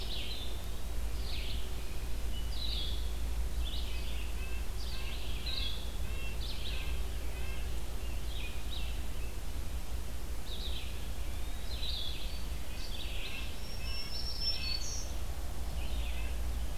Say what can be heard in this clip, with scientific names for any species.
Vireo solitarius, Vireo olivaceus, Contopus virens, Sitta canadensis, Setophaga virens